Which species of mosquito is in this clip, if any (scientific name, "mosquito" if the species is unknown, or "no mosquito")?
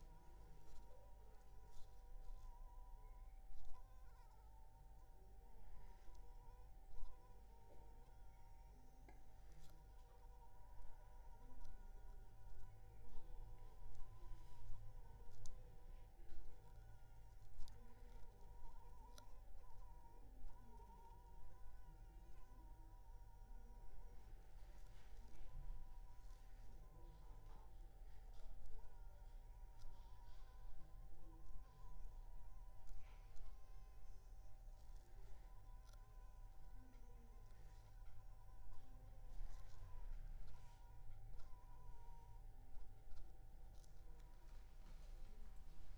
Anopheles funestus s.s.